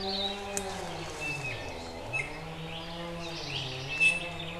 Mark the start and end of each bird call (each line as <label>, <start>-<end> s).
Hawaii Akepa (Loxops coccineus), 0.0-0.4 s
Iiwi (Drepanis coccinea), 1.1-1.7 s
Iiwi (Drepanis coccinea), 2.1-2.5 s
Iiwi (Drepanis coccinea), 3.4-4.5 s